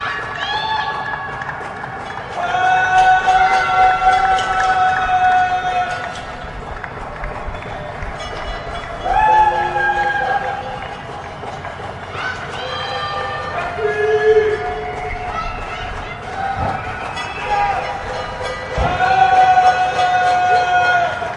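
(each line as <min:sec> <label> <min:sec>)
0:00.0 A woman is shouting from a distance. 0:01.3
0:00.0 People clapping at a distance. 0:21.4
0:02.1 People clank bells irregularly in the distance. 0:21.4
0:02.3 People shouting in the distance. 0:06.3
0:09.0 A man cheers loudly from a distance. 0:10.7
0:12.1 People shouting and cheering in the distance. 0:21.4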